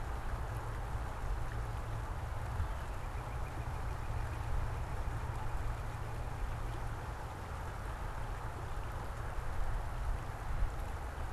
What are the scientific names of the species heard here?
Cardinalis cardinalis